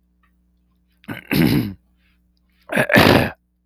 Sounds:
Throat clearing